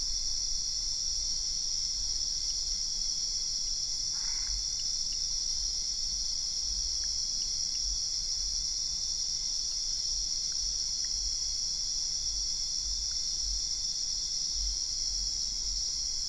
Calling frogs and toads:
Boana albopunctata (Hylidae)
Brazil, 11:30pm

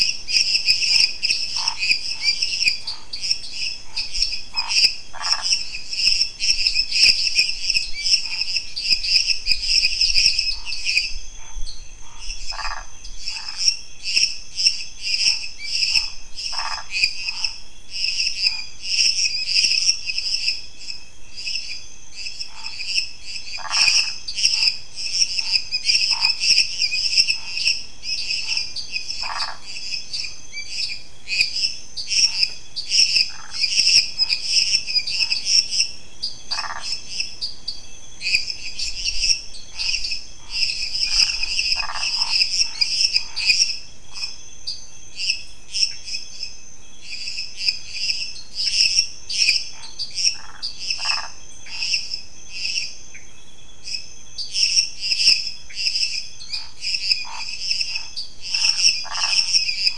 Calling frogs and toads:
Dendropsophus minutus (Hylidae), Dendropsophus nanus (Hylidae), Scinax fuscovarius (Hylidae), Phyllomedusa sauvagii (Hylidae), Pithecopus azureus (Hylidae)
Brazil, ~10pm

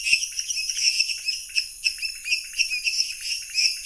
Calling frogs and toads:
Dendropsophus minutus (Hylidae), Dendropsophus nanus (Hylidae), Leptodactylus podicipinus (Leptodactylidae)
Brazil, 9:30pm

